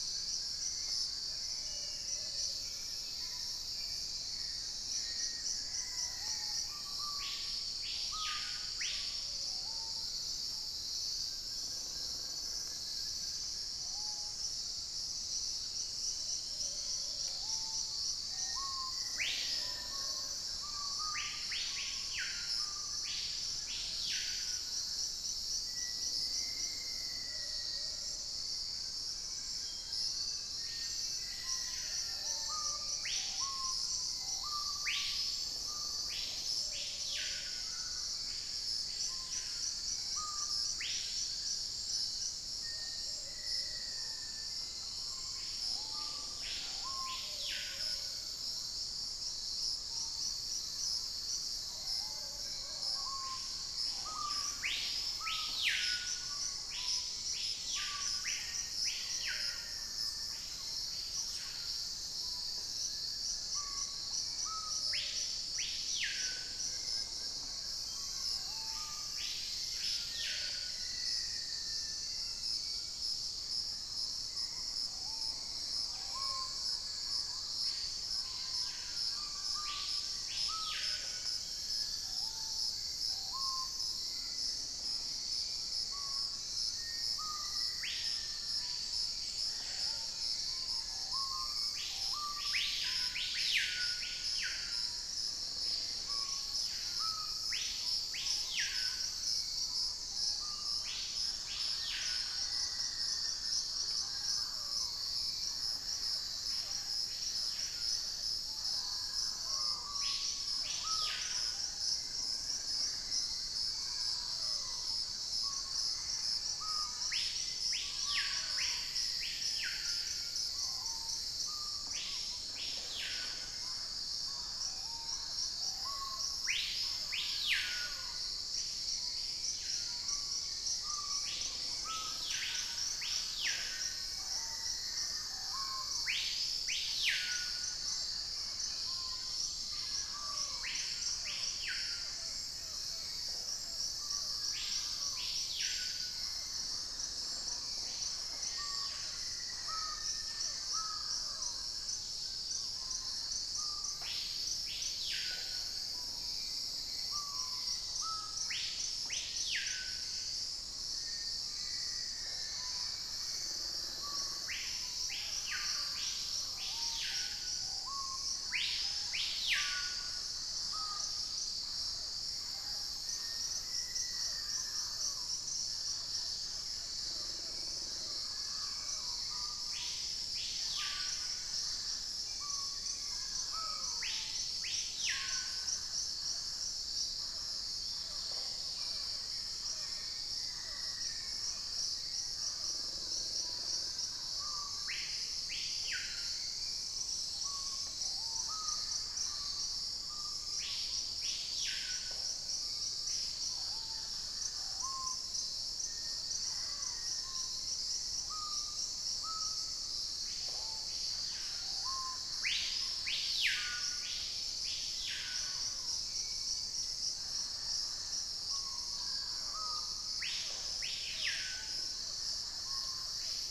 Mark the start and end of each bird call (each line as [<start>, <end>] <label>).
[0.00, 1.45] Wing-barred Piprites (Piprites chloris)
[0.00, 2.75] Plumbeous Pigeon (Patagioenas plumbea)
[1.55, 3.45] Cinereous Mourner (Laniocera hypopyrra)
[2.15, 4.25] unidentified bird
[2.45, 3.25] Dusky-capped Greenlet (Pachysylvia hypoxantha)
[3.15, 10.15] Screaming Piha (Lipaugus vociferans)
[4.85, 6.85] Black-faced Antthrush (Formicarius analis)
[9.05, 10.15] Plumbeous Pigeon (Patagioenas plumbea)
[11.05, 13.85] Wing-barred Piprites (Piprites chloris)
[13.95, 24.95] Screaming Piha (Lipaugus vociferans)
[15.55, 18.15] Dusky-throated Antshrike (Thamnomanes ardesiacus)
[16.05, 20.55] Plumbeous Pigeon (Patagioenas plumbea)
[18.25, 20.85] Black-faced Antthrush (Formicarius analis)
[19.75, 23.95] Wing-barred Piprites (Piprites chloris)
[22.35, 25.15] Thrush-like Wren (Campylorhynchus turdinus)
[25.55, 32.95] Black-faced Antthrush (Formicarius analis)
[27.15, 28.45] Plumbeous Pigeon (Patagioenas plumbea)
[27.65, 31.65] Wing-barred Piprites (Piprites chloris)
[29.45, 31.45] Cinereous Mourner (Laniocera hypopyrra)
[30.55, 186.25] Screaming Piha (Lipaugus vociferans)
[31.95, 33.25] Plumbeous Pigeon (Patagioenas plumbea)
[36.15, 37.75] Plumbeous Pigeon (Patagioenas plumbea)
[38.65, 42.35] Wing-barred Piprites (Piprites chloris)
[42.25, 44.95] Black-faced Antthrush (Formicarius analis)
[42.65, 53.15] Plumbeous Pigeon (Patagioenas plumbea)
[44.35, 47.45] Dusky-throated Antshrike (Thamnomanes ardesiacus)
[47.45, 51.65] Purple-throated Fruitcrow (Querula purpurata)
[49.35, 51.95] Fasciated Antshrike (Cymbilaimus lineatus)
[51.85, 53.55] Wing-barred Piprites (Piprites chloris)
[56.15, 169.05] Hauxwell's Thrush (Turdus hauxwelli)
[58.15, 60.95] Black-faced Antthrush (Formicarius analis)
[58.25, 61.15] Thrush-like Wren (Campylorhynchus turdinus)
[59.05, 59.85] Plumbeous Pigeon (Patagioenas plumbea)
[60.75, 64.75] Fasciated Antshrike (Cymbilaimus lineatus)
[66.25, 69.05] Wing-barred Piprites (Piprites chloris)
[67.65, 72.95] Cinereous Mourner (Laniocera hypopyrra)
[69.75, 72.45] Black-faced Antthrush (Formicarius analis)
[71.25, 73.15] Collared Trogon (Trogon collaris)
[74.25, 77.45] Purple-throated Fruitcrow (Querula purpurata)
[77.55, 83.15] Wing-barred Piprites (Piprites chloris)
[80.65, 82.85] Dusky-throated Antshrike (Thamnomanes ardesiacus)
[84.35, 86.25] unidentified bird
[86.35, 89.15] Black-faced Antthrush (Formicarius analis)
[89.35, 90.45] unidentified bird
[97.65, 99.45] Purple-throated Fruitcrow (Querula purpurata)
[101.35, 104.15] Black-faced Antthrush (Formicarius analis)
[101.55, 104.25] unidentified bird
[105.45, 109.75] Thrush-like Wren (Campylorhynchus turdinus)
[110.45, 114.35] Wing-barred Piprites (Piprites chloris)
[110.75, 111.25] Red-necked Woodpecker (Campephilus rubricollis)
[111.15, 111.45] unidentified bird
[113.45, 115.05] Mealy Parrot (Amazona farinosa)
[113.95, 115.05] Dusky-capped Greenlet (Pachysylvia hypoxantha)
[114.85, 117.75] Thrush-like Wren (Campylorhynchus turdinus)
[116.25, 118.55] unidentified bird
[117.75, 120.45] Black-faced Antthrush (Formicarius analis)
[120.35, 126.45] Purple-throated Fruitcrow (Querula purpurata)
[121.65, 122.15] Red-necked Woodpecker (Campephilus rubricollis)
[123.35, 148.85] Mealy Parrot (Amazona farinosa)
[130.15, 131.25] Dusky-capped Greenlet (Pachysylvia hypoxantha)
[131.15, 132.55] Purple-throated Fruitcrow (Querula purpurata)
[133.35, 136.15] Black-faced Antthrush (Formicarius analis)
[138.35, 140.45] Dusky-throated Antshrike (Thamnomanes ardesiacus)
[143.15, 143.85] Red-necked Woodpecker (Campephilus rubricollis)
[148.05, 150.75] Black-faced Antthrush (Formicarius analis)
[150.65, 152.75] Wing-barred Piprites (Piprites chloris)
[151.85, 152.95] Dusky-capped Greenlet (Pachysylvia hypoxantha)
[152.35, 153.05] Purple-throated Fruitcrow (Querula purpurata)
[155.15, 162.75] Red-necked Woodpecker (Campephilus rubricollis)
[157.45, 158.35] Dusky-capped Greenlet (Pachysylvia hypoxantha)
[160.75, 163.45] Black-faced Antthrush (Formicarius analis)
[168.75, 173.05] unidentified bird
[170.35, 176.85] Dusky-capped Greenlet (Pachysylvia hypoxantha)
[172.75, 175.45] Black-faced Antthrush (Formicarius analis)
[177.35, 185.05] Hauxwell's Thrush (Turdus hauxwelli)
[181.95, 183.75] Chestnut-winged Foliage-gleaner (Dendroma erythroptera)
[182.65, 184.05] Buff-throated Foliage-gleaner (Automolus ochrolaemus)
[187.75, 188.65] unidentified bird
[187.85, 194.15] Mealy Parrot (Amazona farinosa)
[188.05, 188.65] Red-necked Woodpecker (Campephilus rubricollis)
[188.55, 191.45] Dusky-throated Antshrike (Thamnomanes ardesiacus)
[189.45, 191.65] Black-faced Antthrush (Formicarius analis)
[192.05, 195.15] Wing-barred Piprites (Piprites chloris)
[194.25, 223.50] Screaming Piha (Lipaugus vociferans)
[194.75, 215.45] Hauxwell's Thrush (Turdus hauxwelli)
[196.95, 198.05] Dusky-capped Greenlet (Pachysylvia hypoxantha)
[200.55, 204.75] Purple-throated Fruitcrow (Querula purpurata)
[201.85, 202.45] Red-necked Woodpecker (Campephilus rubricollis)
[203.45, 204.55] Dusky-capped Greenlet (Pachysylvia hypoxantha)
[205.65, 207.55] Black-faced Antthrush (Formicarius analis)
[210.35, 210.95] Red-necked Woodpecker (Campephilus rubricollis)
[220.35, 220.85] Red-necked Woodpecker (Campephilus rubricollis)